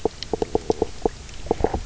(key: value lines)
label: biophony, knock croak
recorder: SoundTrap 300